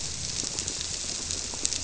{"label": "biophony", "recorder": "SoundTrap 300"}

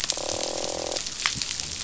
{"label": "biophony, croak", "recorder": "SoundTrap 500"}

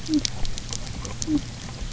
{"label": "biophony", "recorder": "SoundTrap 300"}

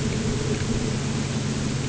{"label": "anthrophony, boat engine", "recorder": "HydroMoth"}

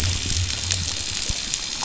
{"label": "biophony", "recorder": "SoundTrap 500"}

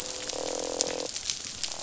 {"label": "biophony, croak", "recorder": "SoundTrap 500"}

